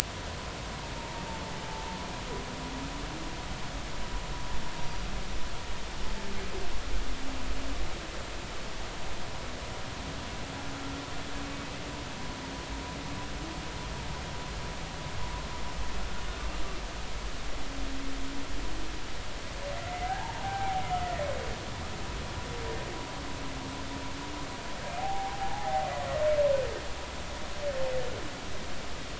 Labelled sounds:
0.9	1.2	humpback whale, 0.86 to 1.0 kHz
19.7	20.8	humpback whale, 0.80 to 2.1 kHz
25.0	25.9	humpback whale, 0.80 to 0.99 kHz

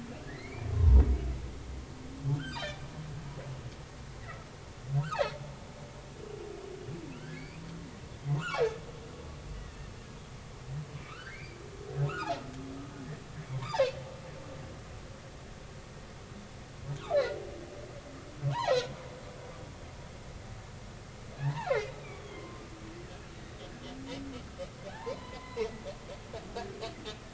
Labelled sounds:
0.2	1.0	humpback whale, 0.90 to 4.5 kHz
2.5	2.8	humpback whale, 2.2 to 4.0 kHz
7.3	8.8	humpback whale, 1.6 to 2.6 kHz
9.3	9.9	humpback whale, 1.7 to 3.1 kHz
11.0	12.3	humpback whale, 1.1 to 4.8 kHz
13.5	13.8	humpback whale, 0.80 to 1.3 kHz
18.5	18.9	humpback whale, 0.80 to 4.3 kHz
21.4	21.7	humpback whale, 0.80 to 2.0 kHz
22.2	23.6	humpback whale, 0.96 to 3.4 kHz
24.3	25.7	humpback whale, 0.80 to 3.9 kHz
26.5	26.8	humpback whale, 1.5 to 1.8 kHz

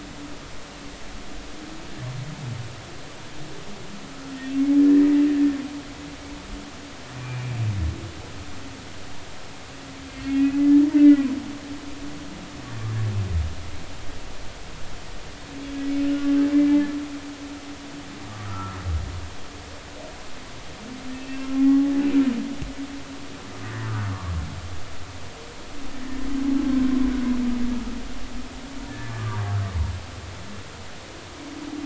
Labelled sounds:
4.8	5.1	humpback whale, 1.7 to 2.0 kHz
7.2	7.6	humpback whale, 2.3 to 2.5 kHz
10.4	11.3	humpback whale, 1.9 to 2.6 kHz
18.4	18.8	humpback whale, 1.2 to 1.4 kHz
21.1	21.9	humpback whale, 0.80 to 2.8 kHz
28.9	29.3	humpback whale, 1.7 to 1.8 kHz

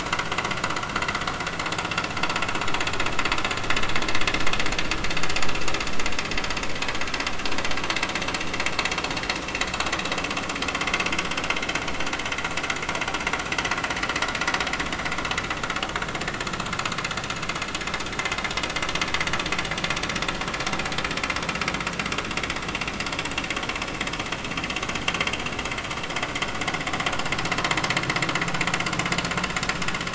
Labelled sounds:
11.6	11.8	vessel noise, 4.0 to 4.1 kHz

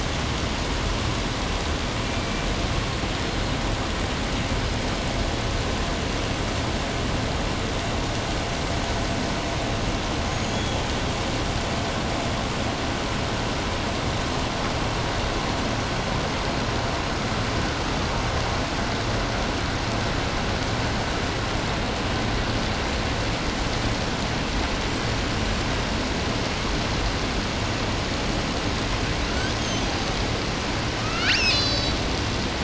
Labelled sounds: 2.0	3.6	killer whale, 1.9 to 5.5 kHz
10.2	10.9	killer whale, 2.6 to 7.2 kHz
24.8	25.9	killer whale, 6.5 to 8.0 kHz
29.0	30.3	killer whale, southern resident, 1.1 to 8.0 kHz
30.8	32.0	killer whale, southern resident, L pod, call S02iii, 0.81 to 8.0 kHz

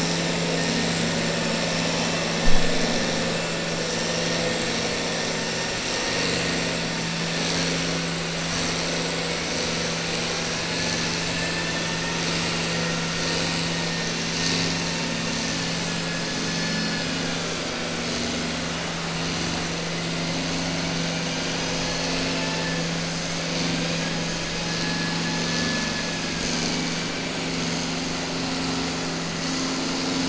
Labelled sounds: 11.3	11.9	vessel noise, 0.89 to 2.7 kHz
16.5	17.4	vessel noise, 1.4 to 2.5 kHz
21.9	22.8	vessel noise, 0.86 to 3.9 kHz

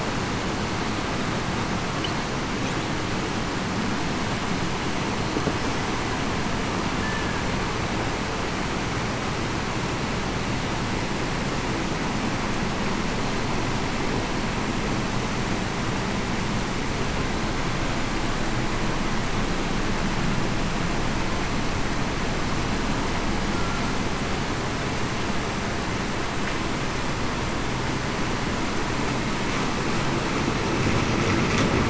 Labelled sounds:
7.0	7.3	killer whale, Bigg's (transient), 1.6 to 1.8 kHz

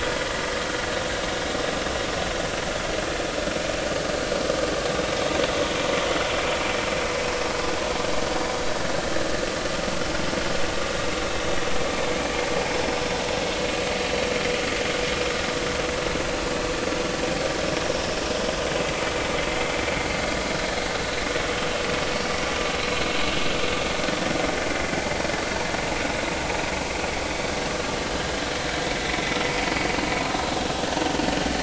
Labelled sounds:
4.9	5.1	vessel noise, 3.7 to 3.8 kHz
19.5	19.8	vessel noise, 2.0 to 2.2 kHz
28.0	28.3	vessel noise, 2.9 to 3.2 kHz
30.3	30.6	vessel noise, 3.9 to 4.0 kHz

